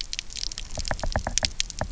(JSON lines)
{"label": "biophony, knock", "recorder": "SoundTrap 300"}